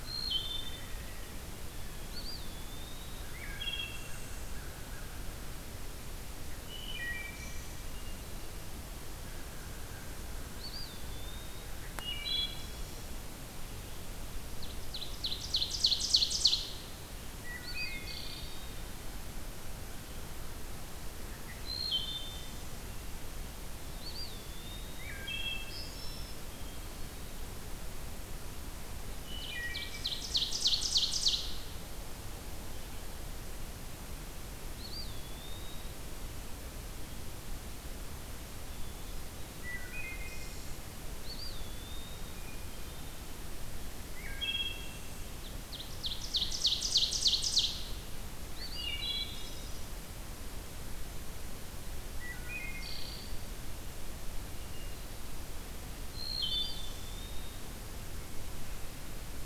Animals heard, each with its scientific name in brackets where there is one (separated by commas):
Hermit Thrush (Catharus guttatus), American Crow (Corvus brachyrhynchos), Ovenbird (Seiurus aurocapilla), Eastern Wood-Pewee (Contopus virens), Wood Thrush (Hylocichla mustelina)